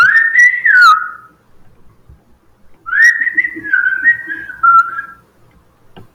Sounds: Sigh